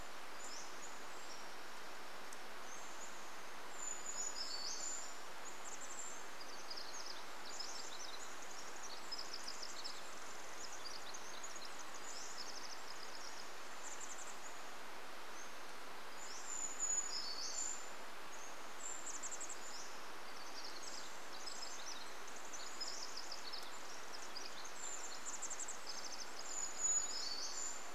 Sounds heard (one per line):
Chestnut-backed Chickadee call
Pacific Wren song
Brown Creeper call
Pacific-slope Flycatcher song
Brown Creeper song